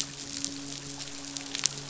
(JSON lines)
{"label": "biophony, midshipman", "recorder": "SoundTrap 500"}